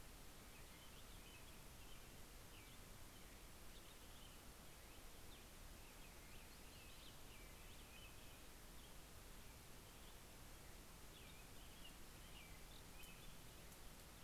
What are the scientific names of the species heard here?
Turdus migratorius, Setophaga coronata, Coccothraustes vespertinus